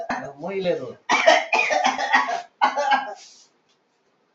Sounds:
Cough